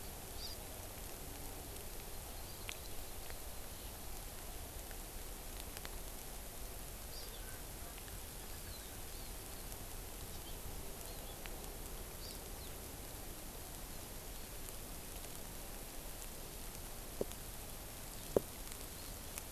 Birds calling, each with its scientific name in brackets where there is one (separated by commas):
Erckel's Francolin (Pternistis erckelii), Hawaii Amakihi (Chlorodrepanis virens)